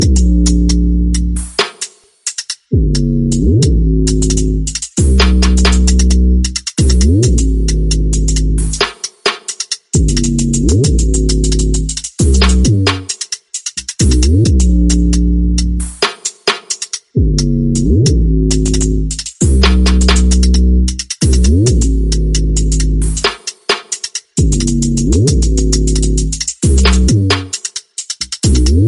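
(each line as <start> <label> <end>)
0.0 A hi-hat cymbal sounds. 1.5
1.5 Drumkit sounds. 2.7
2.8 A hi-hat cymbal sounds. 8.9
9.0 Drumkit sounds. 9.9
10.0 A hi-hat cymbal sounds. 13.0
13.1 Drumkit sounds. 14.0
14.0 A hi-hat cymbal sounds. 16.0
16.0 Drumkit sounds. 17.2
17.2 A hi-hat cymbal sounds. 23.1
23.3 Drumkit sounds. 24.3
24.4 A hi-hat cymbal sounds. 27.4
26.2 Drumkit sounds. 26.7
27.4 Drumkit sounds. 28.4
28.5 A hi-hat cymbal sounds. 28.9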